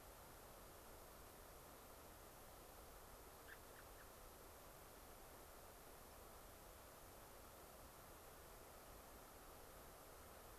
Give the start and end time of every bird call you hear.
[3.40, 4.10] American Robin (Turdus migratorius)

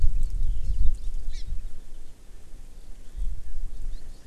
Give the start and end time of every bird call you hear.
[0.43, 1.13] Eurasian Skylark (Alauda arvensis)
[1.33, 1.43] Hawaii Amakihi (Chlorodrepanis virens)

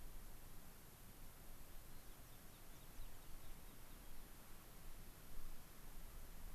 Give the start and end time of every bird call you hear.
[1.74, 2.14] White-crowned Sparrow (Zonotrichia leucophrys)
[2.14, 4.14] American Pipit (Anthus rubescens)

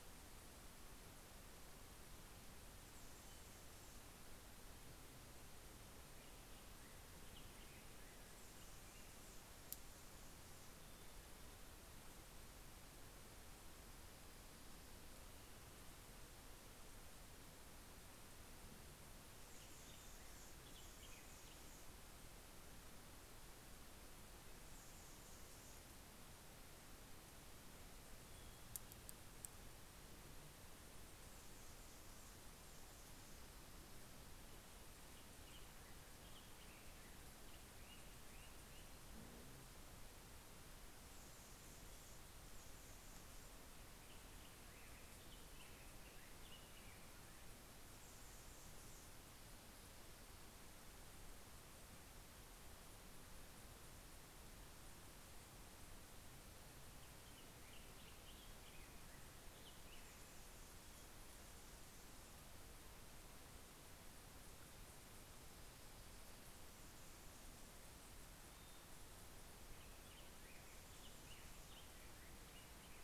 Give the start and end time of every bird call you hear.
[2.00, 4.60] Anna's Hummingbird (Calypte anna)
[5.40, 10.60] Black-headed Grosbeak (Pheucticus melanocephalus)
[8.10, 10.90] Anna's Hummingbird (Calypte anna)
[18.40, 23.50] Black-headed Grosbeak (Pheucticus melanocephalus)
[19.00, 22.50] Anna's Hummingbird (Calypte anna)
[24.00, 26.50] Anna's Hummingbird (Calypte anna)
[30.00, 33.90] Anna's Hummingbird (Calypte anna)
[34.30, 39.40] Black-headed Grosbeak (Pheucticus melanocephalus)
[40.50, 44.00] Anna's Hummingbird (Calypte anna)
[43.20, 48.00] Black-headed Grosbeak (Pheucticus melanocephalus)
[47.20, 50.00] Anna's Hummingbird (Calypte anna)
[55.40, 60.60] Black-headed Grosbeak (Pheucticus melanocephalus)
[59.20, 62.70] Anna's Hummingbird (Calypte anna)
[68.80, 73.00] Black-headed Grosbeak (Pheucticus melanocephalus)

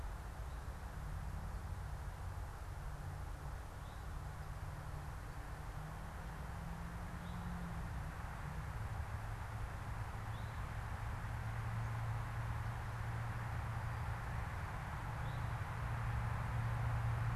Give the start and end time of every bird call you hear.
[3.80, 4.10] Eastern Towhee (Pipilo erythrophthalmus)
[7.10, 7.40] Eastern Towhee (Pipilo erythrophthalmus)
[10.20, 10.60] Eastern Towhee (Pipilo erythrophthalmus)
[15.00, 15.60] Eastern Towhee (Pipilo erythrophthalmus)

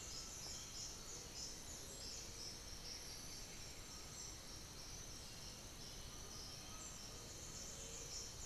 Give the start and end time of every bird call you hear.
[0.00, 8.46] Undulated Tinamou (Crypturellus undulatus)
[0.00, 8.46] unidentified bird

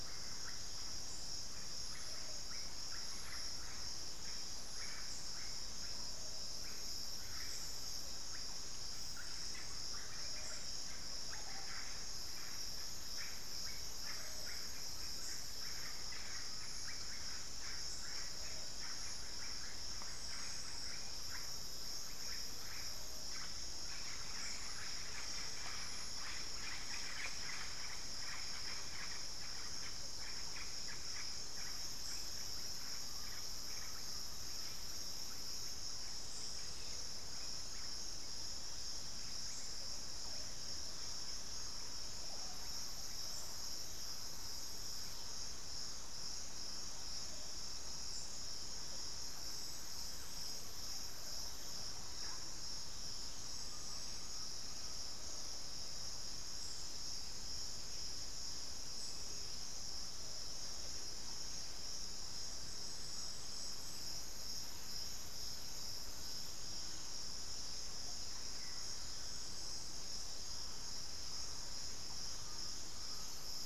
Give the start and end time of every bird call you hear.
[0.00, 45.40] Russet-backed Oropendola (Psarocolius angustifrons)
[15.70, 17.50] Undulated Tinamou (Crypturellus undulatus)
[32.80, 34.80] Undulated Tinamou (Crypturellus undulatus)
[51.80, 52.50] Russet-backed Oropendola (Psarocolius angustifrons)
[53.40, 55.60] Undulated Tinamou (Crypturellus undulatus)
[68.40, 69.00] unidentified bird
[70.20, 72.00] unidentified bird
[72.40, 73.50] Undulated Tinamou (Crypturellus undulatus)

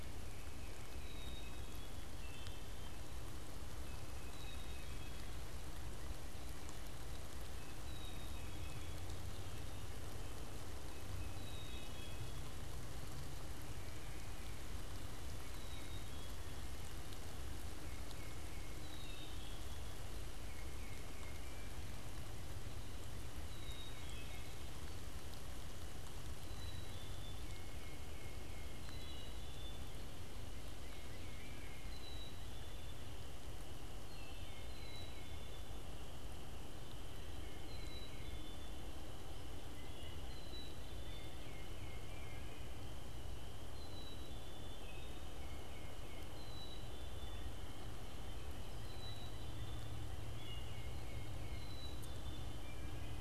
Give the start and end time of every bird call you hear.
[0.00, 1.90] Tufted Titmouse (Baeolophus bicolor)
[0.80, 2.00] Black-capped Chickadee (Poecile atricapillus)
[2.10, 3.00] Wood Thrush (Hylocichla mustelina)
[3.70, 5.20] Tufted Titmouse (Baeolophus bicolor)
[4.20, 5.50] Black-capped Chickadee (Poecile atricapillus)
[7.50, 9.20] Tufted Titmouse (Baeolophus bicolor)
[7.70, 9.20] Black-capped Chickadee (Poecile atricapillus)
[9.00, 10.40] Wood Thrush (Hylocichla mustelina)
[11.10, 12.80] Black-capped Chickadee (Poecile atricapillus)
[15.20, 17.00] Black-capped Chickadee (Poecile atricapillus)
[17.50, 19.00] Tufted Titmouse (Baeolophus bicolor)
[18.70, 20.20] Black-capped Chickadee (Poecile atricapillus)
[20.20, 22.00] Tufted Titmouse (Baeolophus bicolor)
[23.20, 24.80] Black-capped Chickadee (Poecile atricapillus)
[26.30, 28.00] Black-capped Chickadee (Poecile atricapillus)
[27.40, 29.20] Tufted Titmouse (Baeolophus bicolor)
[28.70, 30.10] Black-capped Chickadee (Poecile atricapillus)
[30.60, 32.20] Tufted Titmouse (Baeolophus bicolor)
[31.70, 33.60] Black-capped Chickadee (Poecile atricapillus)
[34.00, 35.70] Tufted Titmouse (Baeolophus bicolor)
[34.50, 36.00] Black-capped Chickadee (Poecile atricapillus)
[37.50, 39.00] Black-capped Chickadee (Poecile atricapillus)
[39.50, 41.50] Northern Cardinal (Cardinalis cardinalis)
[40.10, 41.60] Black-capped Chickadee (Poecile atricapillus)
[41.10, 42.80] Tufted Titmouse (Baeolophus bicolor)
[43.50, 45.00] Black-capped Chickadee (Poecile atricapillus)
[44.70, 46.60] Tufted Titmouse (Baeolophus bicolor)
[46.20, 47.80] Black-capped Chickadee (Poecile atricapillus)
[48.70, 50.20] Black-capped Chickadee (Poecile atricapillus)
[50.20, 52.00] Tufted Titmouse (Baeolophus bicolor)
[51.40, 53.20] Black-capped Chickadee (Poecile atricapillus)

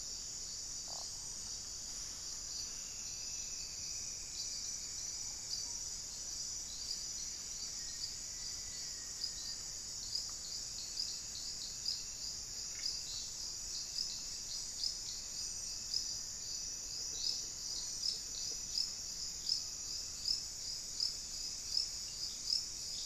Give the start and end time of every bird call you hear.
[2.38, 5.68] Straight-billed Woodcreeper (Dendroplex picus)
[7.48, 9.98] Black-faced Antthrush (Formicarius analis)

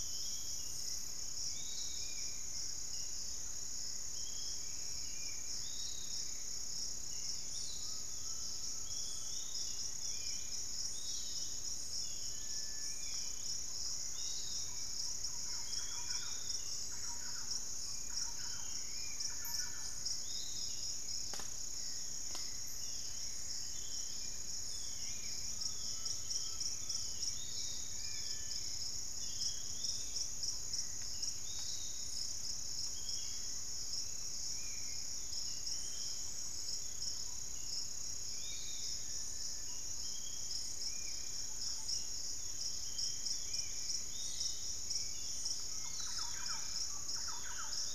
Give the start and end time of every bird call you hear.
[0.00, 0.85] Long-winged Antwren (Myrmotherula longipennis)
[0.00, 47.94] Piratic Flycatcher (Legatus leucophaius)
[0.00, 47.94] Spot-winged Antshrike (Pygiptila stellaris)
[7.75, 9.65] Undulated Tinamou (Crypturellus undulatus)
[9.05, 16.25] Long-winged Antwren (Myrmotherula longipennis)
[12.15, 13.15] Cinereous Tinamou (Crypturellus cinereus)
[14.05, 20.45] Thrush-like Wren (Campylorhynchus turdinus)
[22.75, 29.15] Long-winged Antwren (Myrmotherula longipennis)
[25.45, 27.35] Undulated Tinamou (Crypturellus undulatus)
[27.85, 28.65] Little Tinamou (Crypturellus soui)
[29.55, 30.55] Yellow-margined Flycatcher (Tolmomyias assimilis)
[38.95, 39.75] Cinereous Tinamou (Crypturellus cinereus)
[41.55, 47.94] Long-winged Antwren (Myrmotherula longipennis)
[45.25, 47.94] Thrush-like Wren (Campylorhynchus turdinus)

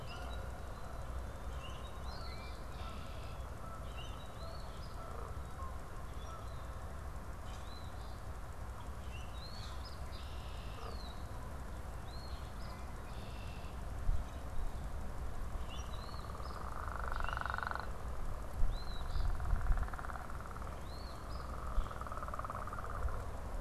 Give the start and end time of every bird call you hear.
[0.00, 0.56] Common Grackle (Quiscalus quiscula)
[0.00, 6.66] Canada Goose (Branta canadensis)
[1.56, 1.96] Common Grackle (Quiscalus quiscula)
[1.76, 2.76] Eastern Phoebe (Sayornis phoebe)
[2.56, 3.66] Red-winged Blackbird (Agelaius phoeniceus)
[3.76, 4.46] Common Grackle (Quiscalus quiscula)
[4.36, 4.96] Eastern Phoebe (Sayornis phoebe)
[6.06, 6.56] Common Grackle (Quiscalus quiscula)
[7.46, 8.36] Eastern Phoebe (Sayornis phoebe)
[8.86, 9.46] Common Grackle (Quiscalus quiscula)
[9.36, 9.96] Eastern Phoebe (Sayornis phoebe)
[10.06, 11.06] Red-winged Blackbird (Agelaius phoeniceus)
[10.76, 11.26] unidentified bird
[11.96, 12.86] Eastern Phoebe (Sayornis phoebe)
[12.96, 13.96] Red-winged Blackbird (Agelaius phoeniceus)
[15.66, 15.96] Common Grackle (Quiscalus quiscula)
[15.86, 16.66] Eastern Phoebe (Sayornis phoebe)
[17.16, 17.86] Common Grackle (Quiscalus quiscula)
[18.66, 19.46] Eastern Phoebe (Sayornis phoebe)
[20.66, 21.66] Eastern Phoebe (Sayornis phoebe)

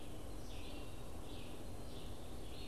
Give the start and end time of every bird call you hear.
[0.00, 2.67] Red-eyed Vireo (Vireo olivaceus)

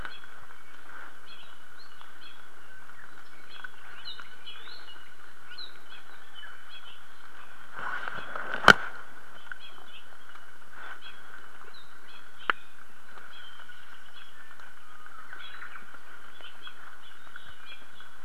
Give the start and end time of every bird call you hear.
[4.00, 4.40] Apapane (Himatione sanguinea)
[5.50, 5.90] Apapane (Himatione sanguinea)
[11.60, 12.00] Apapane (Himatione sanguinea)

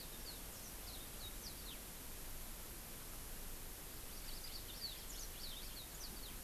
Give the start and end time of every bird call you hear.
[4.10, 6.40] Yellow-fronted Canary (Crithagra mozambica)

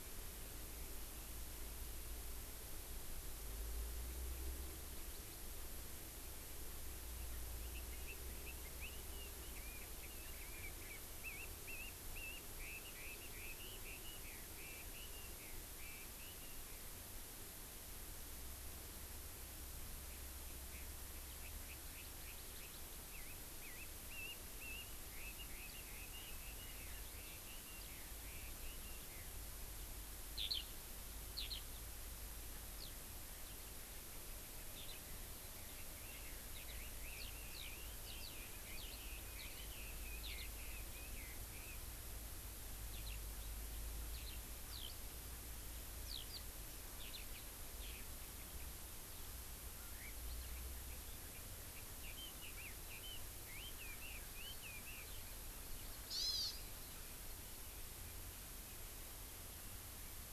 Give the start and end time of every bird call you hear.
[7.54, 16.94] Chinese Hwamei (Garrulax canorus)
[21.34, 29.34] Chinese Hwamei (Garrulax canorus)
[30.34, 30.64] Eurasian Skylark (Alauda arvensis)
[31.34, 31.64] Eurasian Skylark (Alauda arvensis)
[32.74, 32.94] Eurasian Skylark (Alauda arvensis)
[34.74, 34.94] Eurasian Skylark (Alauda arvensis)
[35.54, 41.74] Chinese Hwamei (Garrulax canorus)
[36.54, 36.74] Eurasian Skylark (Alauda arvensis)
[37.14, 37.74] Eurasian Skylark (Alauda arvensis)
[38.04, 38.34] Eurasian Skylark (Alauda arvensis)
[38.74, 39.04] Eurasian Skylark (Alauda arvensis)
[39.34, 39.44] Eurasian Skylark (Alauda arvensis)
[40.14, 40.44] Eurasian Skylark (Alauda arvensis)
[42.94, 43.14] Eurasian Skylark (Alauda arvensis)
[44.14, 44.34] Eurasian Skylark (Alauda arvensis)
[44.64, 44.94] Eurasian Skylark (Alauda arvensis)
[46.04, 46.44] Eurasian Skylark (Alauda arvensis)
[47.04, 47.24] Eurasian Skylark (Alauda arvensis)
[47.74, 48.04] Eurasian Skylark (Alauda arvensis)
[49.74, 55.74] Chinese Hwamei (Garrulax canorus)
[56.04, 56.54] Hawaii Amakihi (Chlorodrepanis virens)

